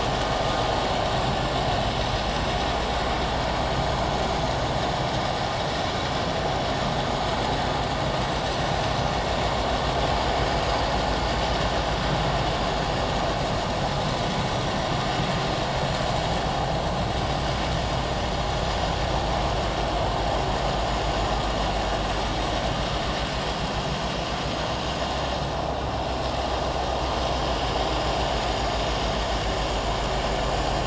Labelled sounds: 3.8	4.1	vessel noise, 6.3 to 6.7 kHz

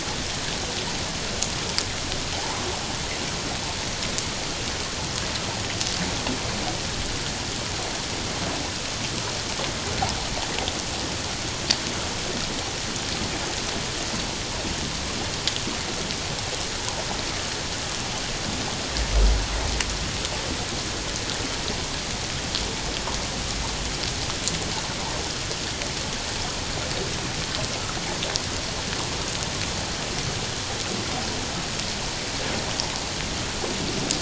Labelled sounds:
2.3	2.6	water noise, 0.78 to 1.1 kHz

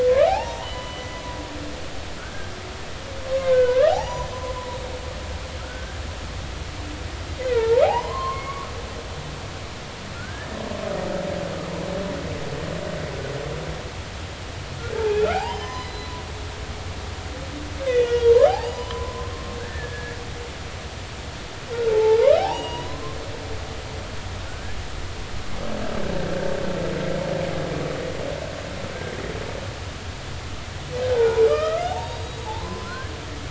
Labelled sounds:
0.1	2.5	humpback whale, 0.80 to 5.7 kHz
3.3	6.0	humpback whale, 0.80 to 7.0 kHz
7.4	8.7	humpback whale, 0.80 to 2.3 kHz
10.1	10.5	humpback whale, 1.3 to 1.9 kHz
14.9	16.2	humpback whale, 0.80 to 6.2 kHz
17.9	20.2	humpback whale, 0.80 to 5.8 kHz
21.9	23.2	humpback whale, 0.80 to 5.9 kHz
24.5	24.8	humpback whale, 1.4 to 1.8 kHz
31.1	33.1	humpback whale, 0.80 to 6.8 kHz

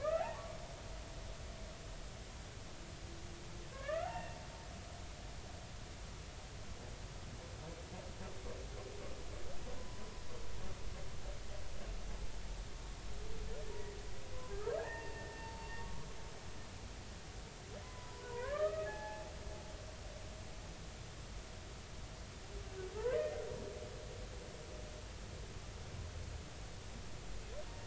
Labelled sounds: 0.0	0.4	humpback whale, 0.80 to 2.8 kHz
3.7	4.4	humpback whale, 1.0 to 2.8 kHz
9.8	10.0	humpback whale, 0.96 to 1.1 kHz
14.8	15.8	humpback whale, 0.80 to 4.6 kHz
17.8	19.3	humpback whale, 0.80 to 2.0 kHz
23.1	23.4	humpback whale, 1.8 to 2.1 kHz

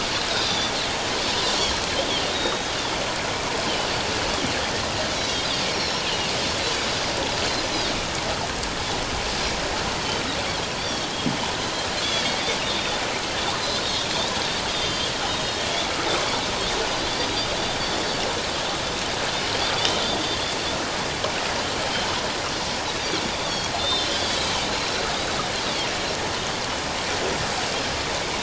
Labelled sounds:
0.3	0.7	Pacific white-sided dolphin, 3.3 to 6.0 kHz
2.3	2.7	Pacific white-sided dolphin, 3.6 to 3.9 kHz
5.2	6.3	Pacific white-sided dolphin, 2.6 to 5.7 kHz
10.8	11.8	Pacific white-sided dolphin, 3.1 to 4.7 kHz
12.6	14.1	Pacific white-sided dolphin, 3.1 to 4.4 kHz
14.7	15.6	Pacific white-sided dolphin, 3.1 to 4.8 kHz
20.0	20.5	Pacific white-sided dolphin, 3.0 to 4.8 kHz
23.8	25.4	Pacific white-sided dolphin, 3.3 to 5.0 kHz

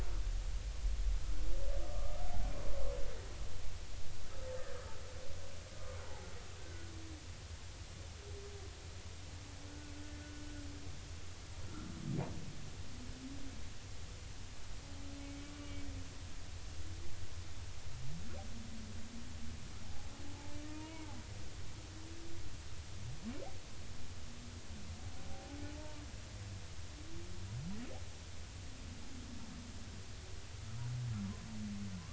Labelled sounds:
1.8	2.2	humpback whale, 1.1 to 1.3 kHz
4.5	4.8	humpback whale, 1.5 to 1.9 kHz
6.6	6.9	humpback whale, 1.4 to 1.6 kHz
9.7	9.9	humpback whale, 1.4 to 1.5 kHz
15.2	15.9	humpback whale, 1.1 to 2.9 kHz
19.8	21.1	humpback whale, 0.80 to 1.0 kHz
25.3	26.0	humpback whale, 0.80 to 0.96 kHz

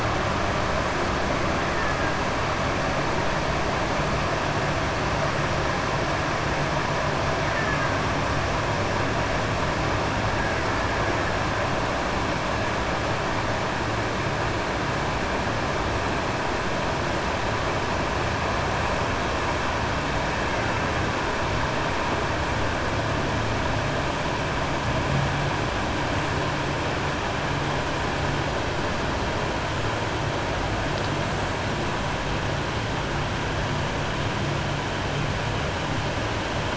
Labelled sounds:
7.4	7.9	killer whale, Bigg's (transient), 1.2 to 2.3 kHz

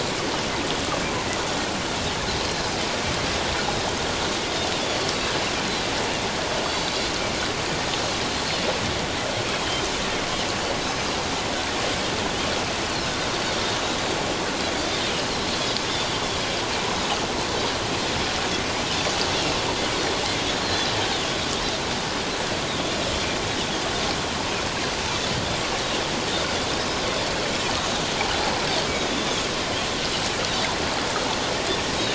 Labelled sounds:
4.9	5.2	Pacific white-sided dolphin, 7.8 to 8.0 kHz
6.6	7.1	Pacific white-sided dolphin, 3.9 to 4.6 kHz
20.6	21.0	Pacific white-sided dolphin, 3.8 to 4.2 kHz

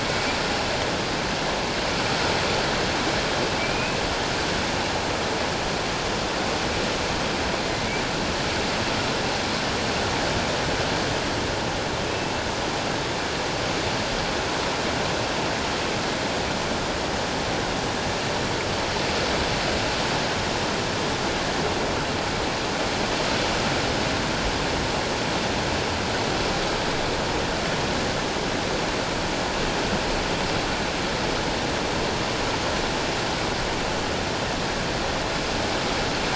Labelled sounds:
3.6	4.0	killer whale, 2.2 to 2.6 kHz
12.1	12.4	killer whale, 2.5 to 2.8 kHz

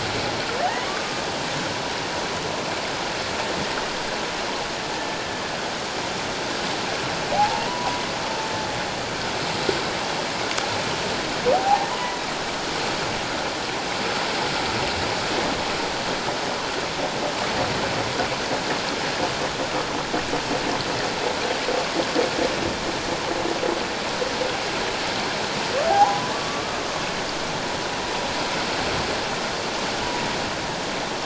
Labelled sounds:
0.9	1.2	humpback whale, 1.1 to 1.3 kHz
7.3	8.0	humpback whale, 0.78 to 1.0 kHz
11.5	12.2	humpback whale, 0.78 to 1.0 kHz
25.9	26.8	humpback whale, 0.78 to 1.3 kHz

